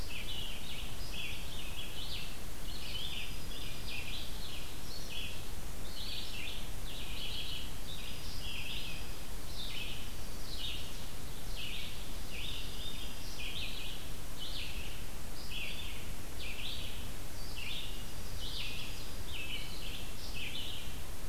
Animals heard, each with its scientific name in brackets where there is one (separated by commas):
Red-eyed Vireo (Vireo olivaceus), Dark-eyed Junco (Junco hyemalis)